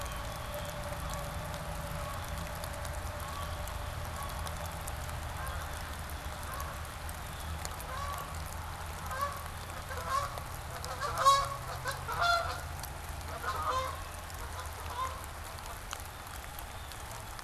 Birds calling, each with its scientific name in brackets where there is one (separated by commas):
Blue Jay (Cyanocitta cristata), Canada Goose (Branta canadensis)